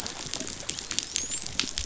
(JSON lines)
{"label": "biophony, dolphin", "recorder": "SoundTrap 500"}